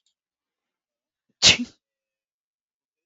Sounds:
Sneeze